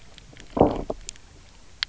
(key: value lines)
label: biophony, low growl
recorder: SoundTrap 300